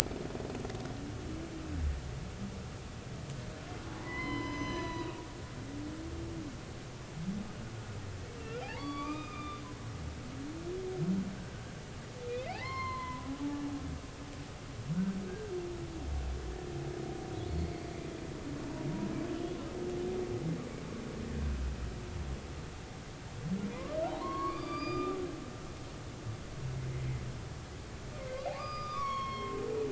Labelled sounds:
4.0	6.1	humpback whale, 0.93 to 6.1 kHz
8.6	9.6	humpback whale, 0.80 to 5.0 kHz
12.4	13.3	humpback whale, 0.80 to 4.3 kHz
14.9	15.5	humpback whale, 1.4 to 1.7 kHz
24.2	25.2	humpback whale, 0.90 to 5.0 kHz
28.4	29.6	humpback whale, 0.96 to 5.7 kHz

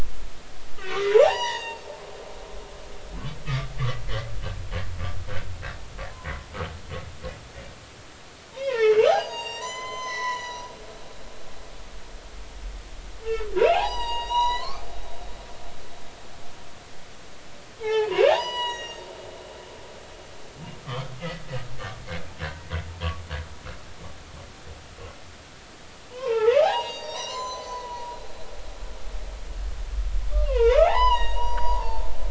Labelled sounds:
0.9	1.8	humpback whale, 0.80 to 6.9 kHz
8.5	10.7	humpback whale, 0.80 to 7.6 kHz
13.2	14.8	humpback whale, 0.80 to 7.8 kHz
17.8	19.1	humpback whale, 0.80 to 7.9 kHz
20.8	21.4	humpback whale, 1.0 to 2.1 kHz
22.6	22.9	humpback whale, 1.9 to 2.1 kHz
26.1	28.2	humpback whale, 0.80 to 7.4 kHz
30.3	32.0	humpback whale, 0.80 to 7.6 kHz

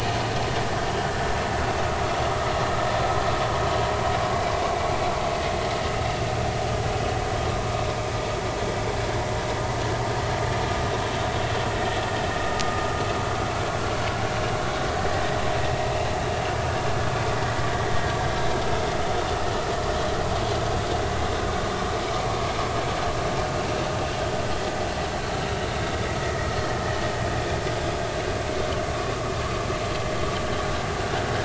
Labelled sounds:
18.6	18.9	vessel noise, 1.2 to 1.4 kHz

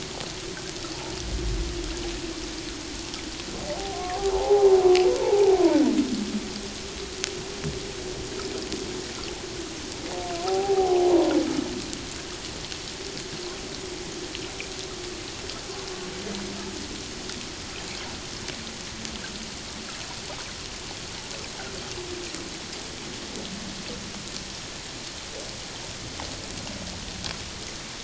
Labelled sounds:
3.8	4.7	humpback whale, 0.78 to 1.2 kHz
5.2	5.6	humpback whale, 0.78 to 0.97 kHz
10.4	11.0	humpback whale, 0.78 to 0.88 kHz

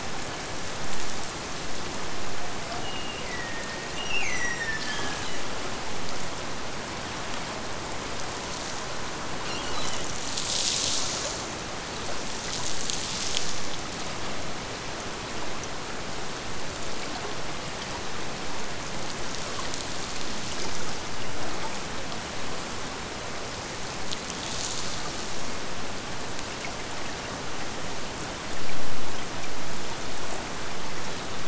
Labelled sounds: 2.8	5.3	killer whale, Bigg's (transient), Gulf of Alaska transient, 1.6 to 8.0 kHz

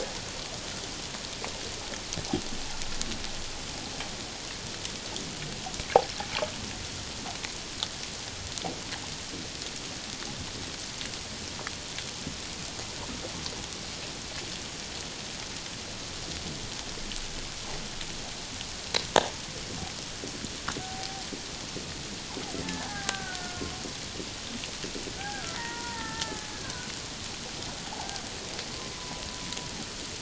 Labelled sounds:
20.8	21.2	killer whale, Bigg's (transient), 0.78 to 0.84 kHz
22.8	23.6	killer whale, Bigg's (transient), 0.78 to 1.7 kHz
25.2	26.5	killer whale, Bigg's (transient), 0.78 to 2.1 kHz
27.9	28.2	killer whale, Bigg's (transient), 0.78 to 0.94 kHz
28.9	29.2	killer whale, Bigg's (transient), 0.94 to 1.0 kHz

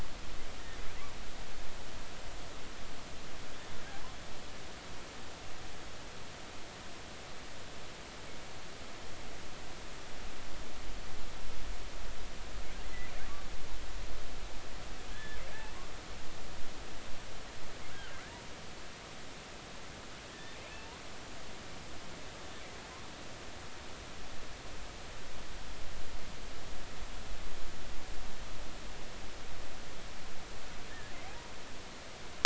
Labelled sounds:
15.1	15.4	killer whale, offshore, 1.6 to 1.9 kHz
20.6	20.9	killer whale, offshore, 2.3 to 2.7 kHz
30.9	31.5	killer whale, offshore, 0.80 to 1.9 kHz

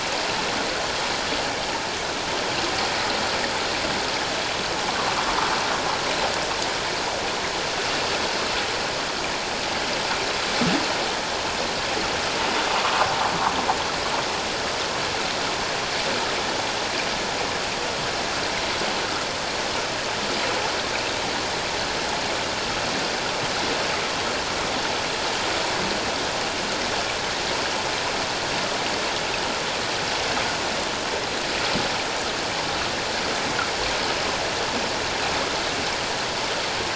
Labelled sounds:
12.8	13.1	sound from a nearby beach, 1.0 to 1.3 kHz

